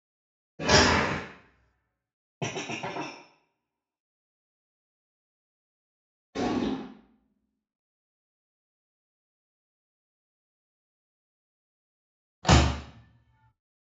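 At the start, you can hear furniture moving. About 2 seconds in, glass is audible. Next, about 6 seconds in, a firecracker is heard. Finally, about 12 seconds in, there is the sound of a car.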